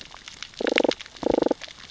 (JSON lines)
{"label": "biophony, damselfish", "recorder": "SoundTrap 600 or HydroMoth"}